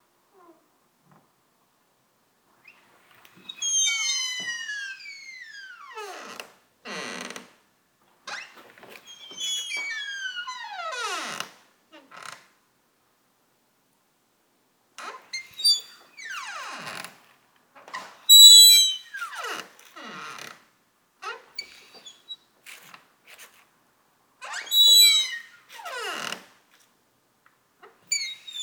Is the hinge is likely very new?
no